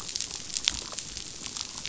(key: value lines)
label: biophony, chatter
recorder: SoundTrap 500